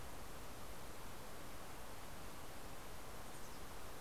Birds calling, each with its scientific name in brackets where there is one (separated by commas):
Mountain Chickadee (Poecile gambeli)